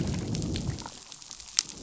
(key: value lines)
label: biophony, growl
recorder: SoundTrap 500